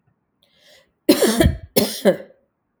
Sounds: Cough